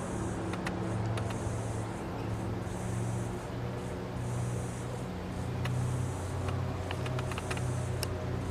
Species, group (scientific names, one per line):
Atrapsalta corticina
Cicadidae